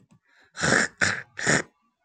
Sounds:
Throat clearing